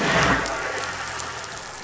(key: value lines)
label: anthrophony, boat engine
recorder: SoundTrap 500